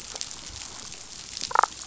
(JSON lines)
{"label": "biophony, damselfish", "recorder": "SoundTrap 500"}